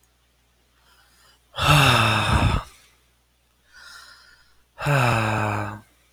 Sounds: Sigh